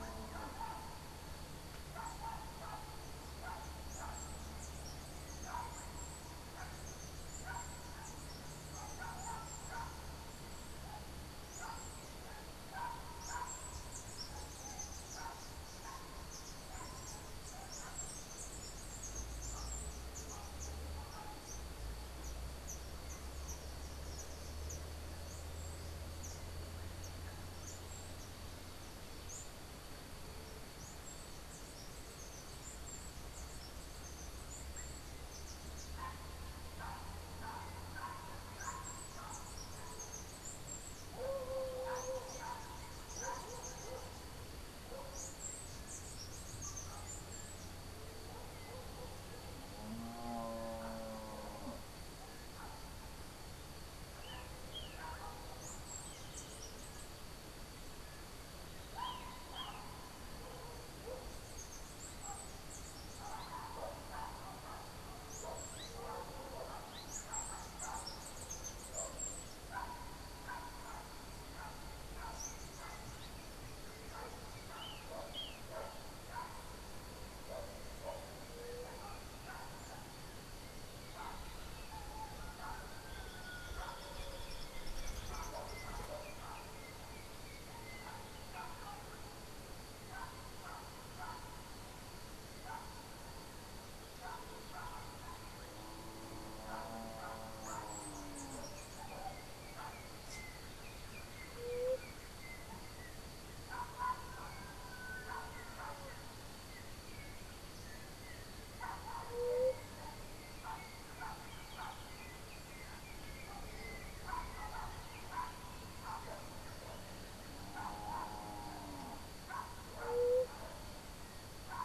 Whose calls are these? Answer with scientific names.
Arremon brunneinucha, unidentified bird, Icterus chrysater, Leptotila verreauxi